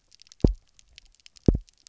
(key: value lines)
label: biophony, double pulse
recorder: SoundTrap 300